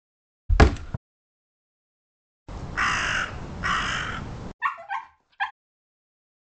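At 0.49 seconds, a wooden cupboard opens. After that, at 2.46 seconds, a crow is heard. Finally, at 4.59 seconds, a dog is audible.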